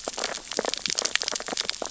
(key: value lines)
label: biophony, sea urchins (Echinidae)
recorder: SoundTrap 600 or HydroMoth